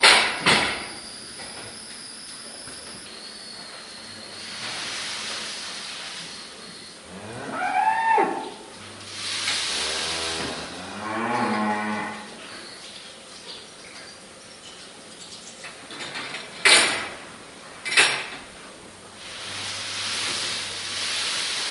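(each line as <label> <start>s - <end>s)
Two sudden, loud clanks of a tool, clear and distant. 0.0s - 1.2s
A continuous whistling sound is heard indoors. 0.0s - 6.8s
A cow is mooing with a high-pitched, clear sound. 6.9s - 8.9s
A cow moos twice with a low pitch. 8.9s - 12.4s
A distant, unclear sound of something being pulled on the floor. 8.9s - 12.4s
High-pitched, distant birds singing. 12.5s - 16.5s
Two sudden, loud, and clear clanking sounds of a tool. 16.6s - 18.6s
A voice accompanied by the clear, close, and loud sound of something being pulled on the floor. 18.7s - 21.7s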